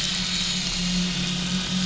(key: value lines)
label: anthrophony, boat engine
recorder: SoundTrap 500